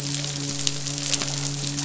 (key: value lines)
label: biophony, midshipman
recorder: SoundTrap 500